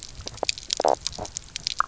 {"label": "biophony, knock croak", "recorder": "SoundTrap 300"}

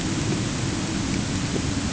{"label": "anthrophony, boat engine", "recorder": "HydroMoth"}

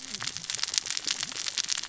{"label": "biophony, cascading saw", "recorder": "SoundTrap 600 or HydroMoth"}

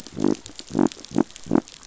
{"label": "biophony", "recorder": "SoundTrap 500"}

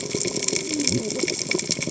{"label": "biophony, cascading saw", "recorder": "HydroMoth"}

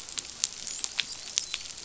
{"label": "biophony, dolphin", "recorder": "SoundTrap 500"}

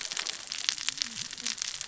{"label": "biophony, cascading saw", "recorder": "SoundTrap 600 or HydroMoth"}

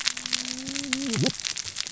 {"label": "biophony, cascading saw", "recorder": "SoundTrap 600 or HydroMoth"}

